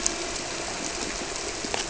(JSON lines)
{"label": "biophony", "recorder": "SoundTrap 300"}